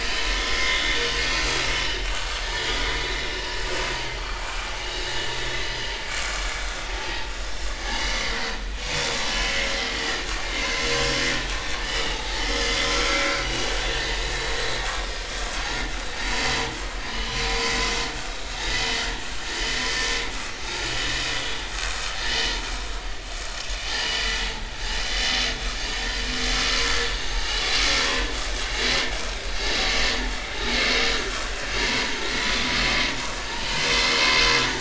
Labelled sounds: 0.4	1.1	vessel noise, 2.0 to 3.7 kHz
3.3	3.6	vessel noise, 2.8 to 2.9 kHz
4.8	5.1	vessel noise, 2.8 to 4.0 kHz
7.0	8.3	vessel noise, 2.0 to 6.0 kHz
9.3	10.0	vessel noise, 2.9 to 3.3 kHz
11.8	13.7	vessel noise, 1.3 to 5.9 kHz
15.0	15.2	vessel noise, 4.9 to 5.1 kHz
17.1	17.4	vessel noise, 2.8 to 3.0 kHz
18.7	19.0	vessel noise, 2.9 to 3.2 kHz
22.2	22.5	vessel noise, 2.8 to 3.1 kHz
24.0	24.2	vessel noise, 2.8 to 3.1 kHz
26.7	27.6	vessel noise, 0.80 to 6.3 kHz
28.0	28.3	vessel noise, 0.96 to 1.2 kHz
29.2	30.1	vessel noise, 5.3 to 7.6 kHz
31.0	31.3	vessel noise, 5.7 to 5.9 kHz
31.8	32.7	vessel noise, 0.90 to 3.6 kHz

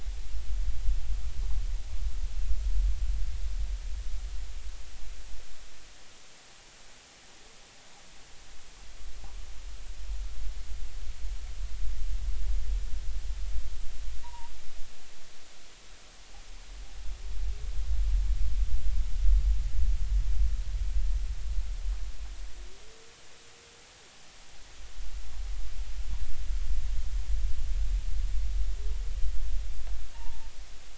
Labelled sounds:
14.2	14.5	humpback whale, 0.83 to 1.0 kHz
30.1	30.5	humpback whale, 0.83 to 1.0 kHz

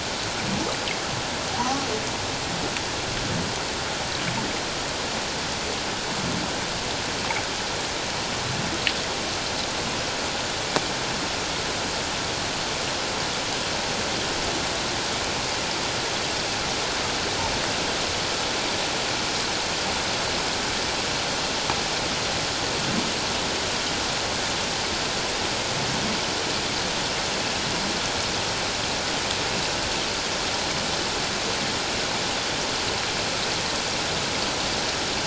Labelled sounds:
1.6	1.9	humpback whale, 0.91 to 1.2 kHz

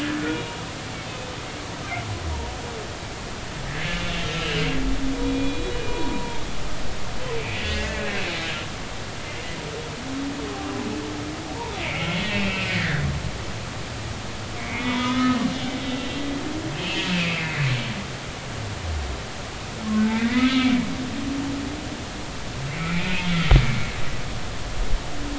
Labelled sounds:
1.1	1.3	humpback whale, 2.5 to 2.6 kHz
4.0	4.7	humpback whale, 1.5 to 4.1 kHz
5.2	6.4	humpback whale, 0.86 to 3.9 kHz
7.5	8.0	humpback whale, 1.6 to 2.8 kHz
12.3	13.1	humpback whale, 1.4 to 2.8 kHz
14.6	15.4	humpback whale, 0.90 to 3.6 kHz
16.7	17.6	humpback whale, 1.9 to 3.2 kHz
20.1	20.7	humpback whale, 1.2 to 3.5 kHz
22.7	23.3	humpback whale, 2.0 to 2.8 kHz

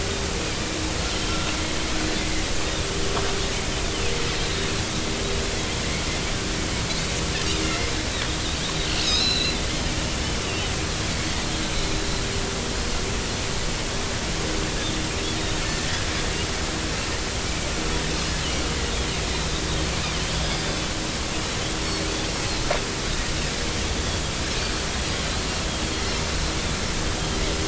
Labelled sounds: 4.4	4.7	Pacific white-sided dolphin, 3.6 to 3.8 kHz
7.6	7.9	Pacific white-sided dolphin, 2.0 to 2.2 kHz
9.0	9.6	Pacific white-sided dolphin, 2.4 to 4.3 kHz
15.6	16.0	Pacific white-sided dolphin, 1.6 to 2.0 kHz
20.4	20.9	Pacific white-sided dolphin, 3.4 to 5.1 kHz
25.8	26.2	Pacific white-sided dolphin, 4.2 to 4.4 kHz

